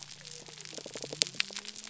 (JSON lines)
{"label": "biophony", "recorder": "SoundTrap 300"}